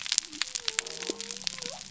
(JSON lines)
{"label": "biophony", "recorder": "SoundTrap 300"}